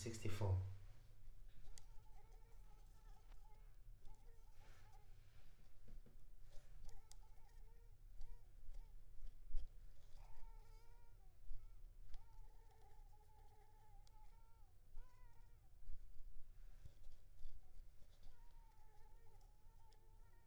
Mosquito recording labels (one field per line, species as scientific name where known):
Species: Culex pipiens complex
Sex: female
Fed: unfed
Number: one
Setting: cup